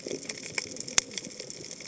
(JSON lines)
{"label": "biophony, cascading saw", "recorder": "HydroMoth"}